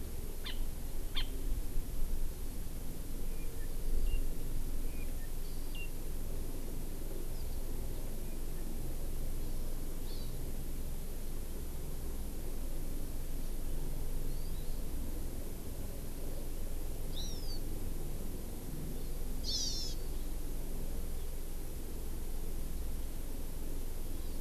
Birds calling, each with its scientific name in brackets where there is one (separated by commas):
Hawaii Amakihi (Chlorodrepanis virens)